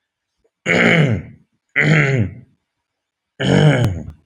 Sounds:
Throat clearing